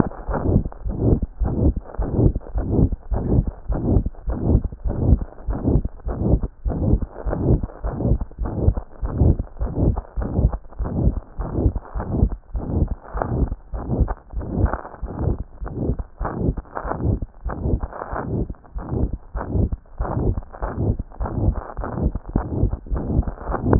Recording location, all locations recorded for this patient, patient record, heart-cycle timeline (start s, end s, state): pulmonary valve (PV)
pulmonary valve (PV)+tricuspid valve (TV)+mitral valve (MV)
#Age: Child
#Sex: Male
#Height: 104.0 cm
#Weight: 17.5 kg
#Pregnancy status: False
#Murmur: Present
#Murmur locations: mitral valve (MV)+pulmonary valve (PV)+tricuspid valve (TV)
#Most audible location: pulmonary valve (PV)
#Systolic murmur timing: Holosystolic
#Systolic murmur shape: Plateau
#Systolic murmur grading: I/VI
#Systolic murmur pitch: Medium
#Systolic murmur quality: Harsh
#Diastolic murmur timing: nan
#Diastolic murmur shape: nan
#Diastolic murmur grading: nan
#Diastolic murmur pitch: nan
#Diastolic murmur quality: nan
#Outcome: Abnormal
#Campaign: 2014 screening campaign
0.00	0.28	diastole
0.28	0.40	S1
0.40	0.46	systole
0.46	0.62	S2
0.62	0.84	diastole
0.84	0.96	S1
0.96	1.04	systole
1.04	1.20	S2
1.20	1.46	diastole
1.46	1.56	S1
1.56	1.62	systole
1.62	1.74	S2
1.74	1.98	diastole
1.98	2.10	S1
2.10	2.16	systole
2.16	2.32	S2
2.32	2.54	diastole
2.54	2.66	S1
2.66	2.72	systole
2.72	2.88	S2
2.88	3.10	diastole
3.10	3.22	S1
3.22	3.30	systole
3.30	3.46	S2
3.46	3.68	diastole
3.68	3.80	S1
3.80	3.88	systole
3.88	4.04	S2
4.04	4.26	diastole
4.26	4.38	S1
4.38	4.46	systole
4.46	4.62	S2
4.62	4.84	diastole
4.84	4.96	S1
4.96	5.04	systole
5.04	5.20	S2
5.20	5.48	diastole
5.48	5.60	S1
5.60	5.66	systole
5.66	5.82	S2
5.82	6.06	diastole
6.06	6.18	S1
6.18	6.24	systole
6.24	6.40	S2
6.40	6.66	diastole
6.66	6.78	S1
6.78	6.84	systole
6.84	7.00	S2
7.00	7.26	diastole
7.26	7.38	S1
7.38	7.46	systole
7.46	7.60	S2
7.60	7.84	diastole
7.84	7.96	S1
7.96	8.04	systole
8.04	8.18	S2
8.18	8.40	diastole
8.40	8.52	S1
8.52	8.62	systole
8.62	8.76	S2
8.76	9.04	diastole
9.04	9.14	S1
9.14	9.22	systole
9.22	9.38	S2
9.38	9.62	diastole
9.62	9.72	S1
9.72	9.80	systole
9.80	9.96	S2
9.96	10.18	diastole
10.18	10.26	S1
10.26	10.36	systole
10.36	10.52	S2
10.52	10.80	diastole
10.80	10.90	S1
10.90	10.98	systole
10.98	11.14	S2
11.14	11.40	diastole
11.40	11.52	S1
11.52	11.56	systole
11.56	11.70	S2
11.70	11.96	diastole
11.96	12.06	S1
12.06	12.14	systole
12.14	12.30	S2
12.30	12.56	diastole
12.56	12.68	S1
12.68	12.76	systole
12.76	12.90	S2
12.90	13.16	diastole
13.16	13.28	S1
13.28	13.36	systole
13.36	13.50	S2
13.50	13.74	diastole
13.74	13.82	S1
13.82	13.92	systole
13.92	14.08	S2
14.08	14.38	diastole
14.38	14.50	S1
14.50	14.58	systole
14.58	14.74	S2
14.74	15.04	diastole
15.04	15.12	S1
15.12	15.22	systole
15.22	15.38	S2
15.38	15.68	diastole
15.68	15.76	S1
15.76	15.82	systole
15.82	15.96	S2
15.96	16.22	diastole
16.22	16.30	S1
16.30	16.42	systole
16.42	16.56	S2
16.56	16.86	diastole
16.86	16.96	S1
16.96	17.04	systole
17.04	17.20	S2
17.20	17.46	diastole
17.46	17.54	S1
17.54	17.64	systole
17.64	17.80	S2
17.80	18.14	diastole
18.14	18.24	S1
18.24	18.34	systole
18.34	18.48	S2
18.48	18.76	diastole
18.76	18.88	S1
18.88	19.00	systole
19.00	19.12	S2
19.12	19.36	diastole
19.36	19.48	S1
19.48	19.54	systole
19.54	19.70	S2
19.70	19.98	diastole
19.98	20.10	S1
20.10	20.22	systole
20.22	20.36	S2
20.36	20.62	diastole
20.62	20.72	S1
20.72	20.80	systole
20.80	20.96	S2
20.96	21.20	diastole
21.20	21.32	S1
21.32	21.42	systole
21.42	21.56	S2
21.56	21.80	diastole
21.80	21.88	S1
21.88	21.98	systole
21.98	22.14	S2
22.14	22.36	diastole
22.36	22.50	S1
22.50	22.58	systole
22.58	22.70	S2
22.70	22.92	diastole
22.92	23.06	S1
23.06	23.18	systole
23.18	23.34	S2
23.34	23.66	diastole
23.66	23.79	S1